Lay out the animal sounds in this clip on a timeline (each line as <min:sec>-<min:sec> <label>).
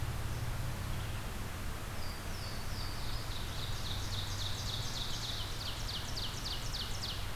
0:00.0-0:01.6 Red-eyed Vireo (Vireo olivaceus)
0:01.7-0:03.7 Louisiana Waterthrush (Parkesia motacilla)
0:03.0-0:07.4 Ovenbird (Seiurus aurocapilla)